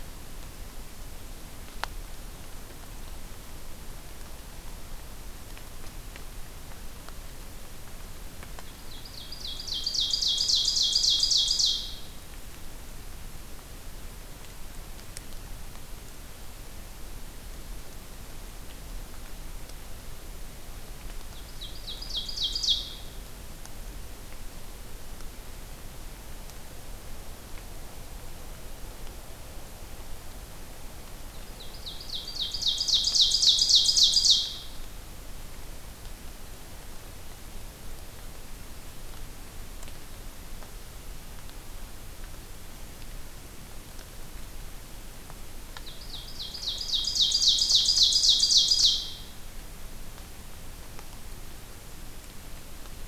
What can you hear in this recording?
Ovenbird